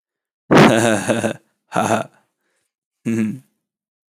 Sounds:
Laughter